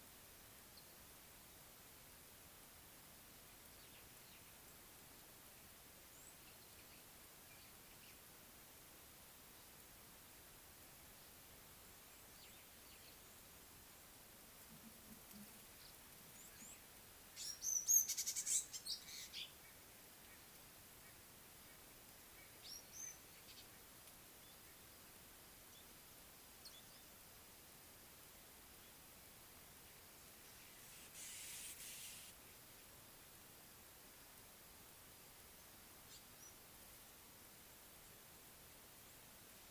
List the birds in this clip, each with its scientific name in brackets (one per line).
African Gray Flycatcher (Bradornis microrhynchus)